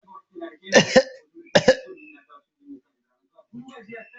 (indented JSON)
{
  "expert_labels": [
    {
      "quality": "ok",
      "cough_type": "unknown",
      "dyspnea": false,
      "wheezing": false,
      "stridor": false,
      "choking": false,
      "congestion": false,
      "nothing": true,
      "diagnosis": "healthy cough",
      "severity": "pseudocough/healthy cough"
    }
  ]
}